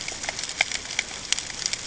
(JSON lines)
{"label": "ambient", "recorder": "HydroMoth"}